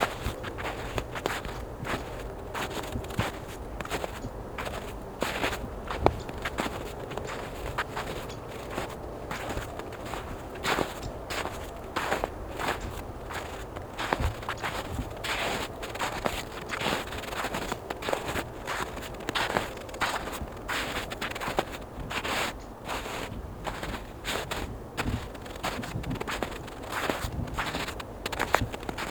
What is the person walking on?
snow